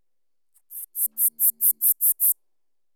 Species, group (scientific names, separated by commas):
Neocallicrania miegii, Orthoptera